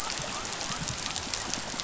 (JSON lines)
{"label": "biophony", "recorder": "SoundTrap 500"}